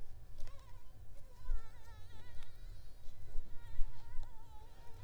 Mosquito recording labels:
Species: Mansonia africanus; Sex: female; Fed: unfed; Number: one; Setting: cup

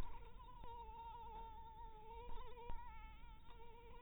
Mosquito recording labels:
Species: Anopheles maculatus; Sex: female; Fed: blood-fed; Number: one; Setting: cup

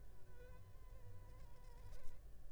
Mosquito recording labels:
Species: Anopheles funestus s.s.; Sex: female; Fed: unfed; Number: one; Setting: cup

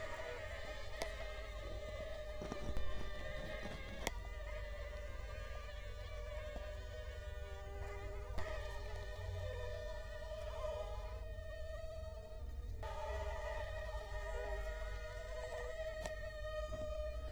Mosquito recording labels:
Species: Culex quinquefasciatus; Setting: cup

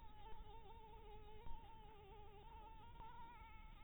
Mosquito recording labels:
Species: Anopheles maculatus; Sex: female; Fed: blood-fed; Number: one; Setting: cup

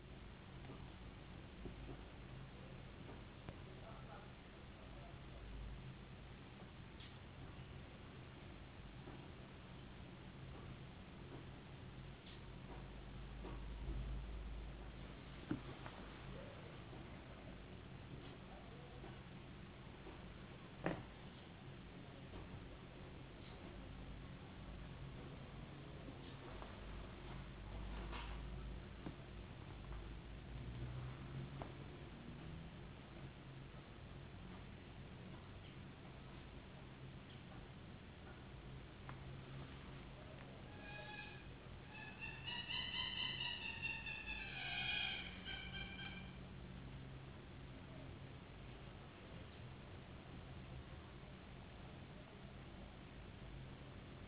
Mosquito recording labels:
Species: no mosquito; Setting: insect culture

